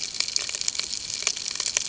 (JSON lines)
{"label": "ambient", "recorder": "HydroMoth"}